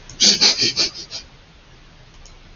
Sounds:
Sniff